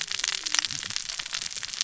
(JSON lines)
{"label": "biophony, cascading saw", "recorder": "SoundTrap 600 or HydroMoth"}